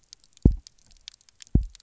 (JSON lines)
{"label": "biophony, double pulse", "recorder": "SoundTrap 300"}